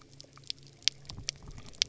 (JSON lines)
{"label": "anthrophony, boat engine", "recorder": "SoundTrap 300"}